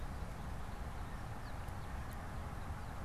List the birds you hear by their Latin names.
Spinus tristis